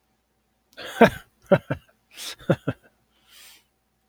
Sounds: Laughter